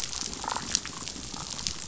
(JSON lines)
{"label": "biophony, damselfish", "recorder": "SoundTrap 500"}